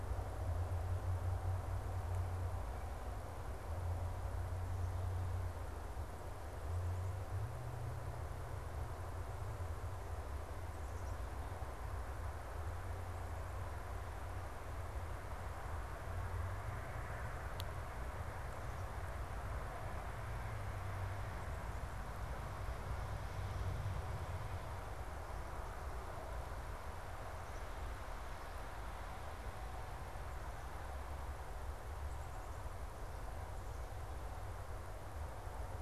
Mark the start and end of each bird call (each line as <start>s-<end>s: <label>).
10.5s-11.6s: Black-capped Chickadee (Poecile atricapillus)